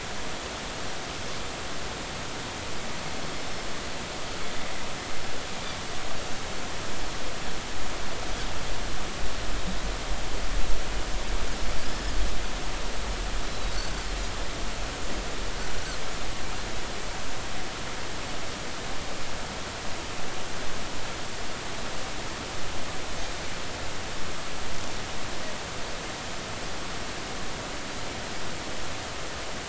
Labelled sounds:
11.8	12.1	Pacific white-sided dolphin, 4.9 to 5.3 kHz
13.5	13.8	Pacific white-sided dolphin, 3.8 to 4.1 kHz

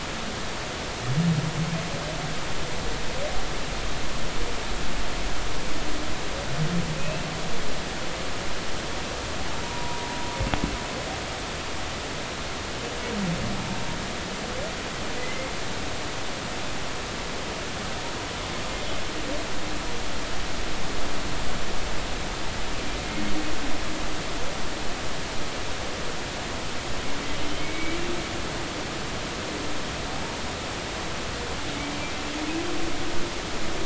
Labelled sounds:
6.9	7.3	humpback whale, 2.4 to 2.8 kHz
9.6	10.1	humpback whale, 0.90 to 1.1 kHz
15.2	15.5	humpback whale, 1.9 to 2.2 kHz
27.6	28.0	humpback whale, 2.1 to 2.4 kHz

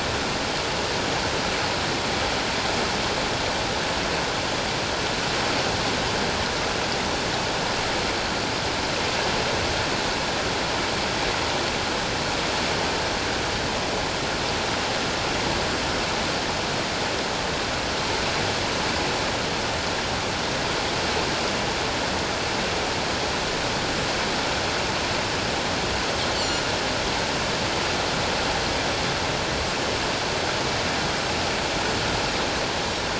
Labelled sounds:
26.4	26.6	Pacific white-sided dolphin, 4.2 to 4.6 kHz

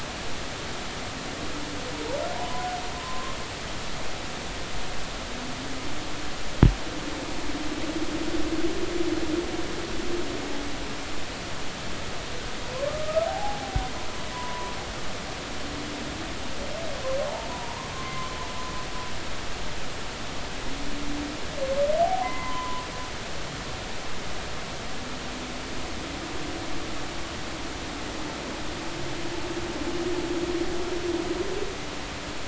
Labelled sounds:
2.4	2.7	humpback whale, 0.80 to 1.1 kHz
2.9	3.4	humpback whale, 0.99 to 1.1 kHz
12.7	13.8	humpback whale, 0.80 to 1.4 kHz
14.3	14.7	humpback whale, 0.93 to 1.1 kHz
17.2	18.3	humpback whale, 0.80 to 1.2 kHz
22.0	22.8	humpback whale, 0.80 to 2.1 kHz

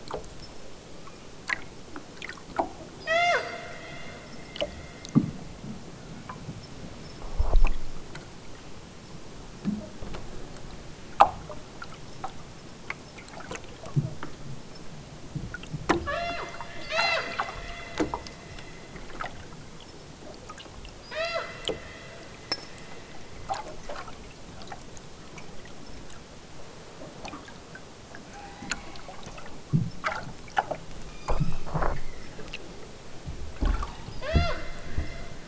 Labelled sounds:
3.0	3.5	killer whale, southern Alaska resident, 0.32 to 8.0 kHz
6.1	6.4	killer whale, southern Alaska resident, 1.7 to 4.2 kHz
16.1	16.6	killer whale, southern Alaska resident, 0.32 to 6.8 kHz
16.9	17.4	killer whale, southern Alaska resident, 0.32 to 8.0 kHz
21.0	21.5	killer whale, southern Alaska resident, 0.32 to 8.0 kHz
28.3	29.2	killer whale, southern Alaska resident, 1.1 to 5.1 kHz
31.0	32.6	killer whale, southern Alaska resident, 0.92 to 8.0 kHz
34.2	34.6	killer whale, southern Alaska resident, 0.50 to 8.0 kHz

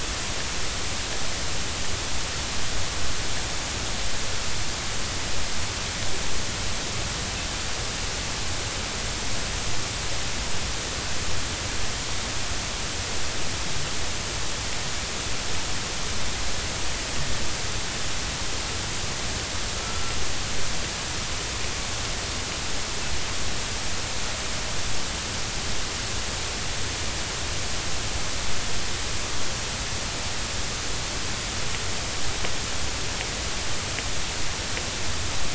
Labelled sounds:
19.7	20.1	killer whale, northern resident, A clan, AA subclan, 1.3 to 1.4 kHz

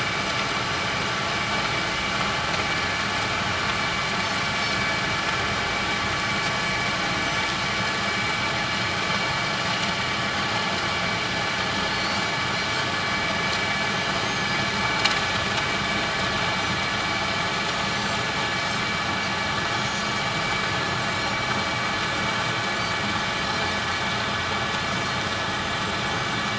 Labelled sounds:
11.9	12.2	Pacific white-sided dolphin, 4.3 to 4.7 kHz
19.7	20.1	Pacific white-sided dolphin, 5.2 to 6.7 kHz
26.1	26.4	Pacific white-sided dolphin, 6.2 to 6.4 kHz

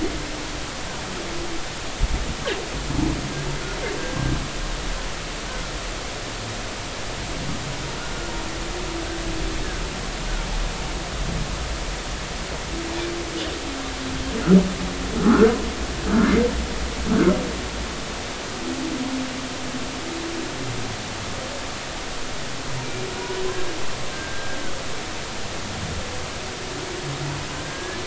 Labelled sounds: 5.5	5.7	humpback whale, 1.3 to 1.6 kHz
15.2	15.5	humpback whale, 1.1 to 1.6 kHz
24.1	24.6	humpback whale, 1.5 to 1.7 kHz
27.5	28.0	humpback whale, 1.5 to 1.8 kHz

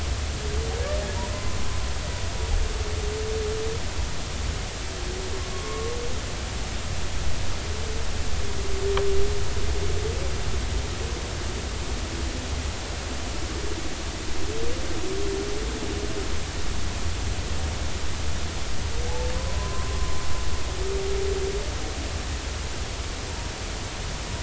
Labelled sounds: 1.3	1.6	humpback whale, 0.99 to 1.1 kHz
5.5	5.9	humpback whale, 1.0 to 1.2 kHz
19.1	19.9	humpback whale, 0.80 to 1.1 kHz

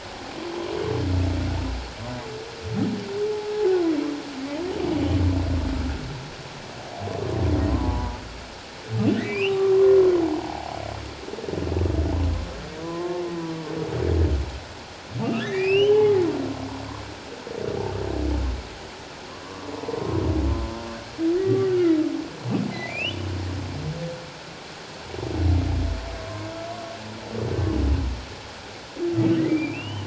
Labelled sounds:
7.7	8.2	humpback whale, 0.81 to 1.2 kHz
9.1	9.8	humpback whale, 0.94 to 3.1 kHz
10.2	10.7	humpback whale, 0.78 to 1.1 kHz
12.8	13.2	humpback whale, 0.94 to 1.1 kHz
15.2	16.2	humpback whale, 0.81 to 3.3 kHz
19.4	19.7	humpback whale, 1.0 to 1.2 kHz
21.4	22.0	humpback whale, 1.1 to 1.6 kHz
22.7	23.2	humpback whale, 1.9 to 3.1 kHz
26.2	26.5	humpback whale, 0.97 to 1.1 kHz
29.5	30.0	humpback whale, 2.2 to 3.2 kHz

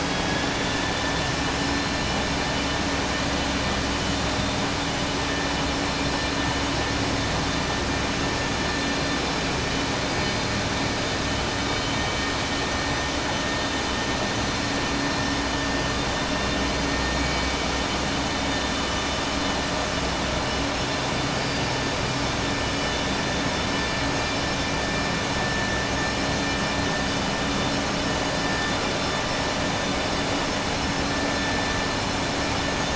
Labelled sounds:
0.0	1.3	vessel noise, 1.7 to 3.9 kHz

